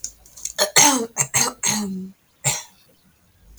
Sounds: Throat clearing